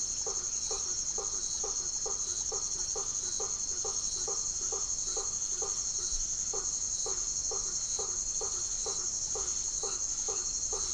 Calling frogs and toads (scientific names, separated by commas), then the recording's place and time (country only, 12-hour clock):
Boana faber, Leptodactylus notoaktites
Brazil, 8:00pm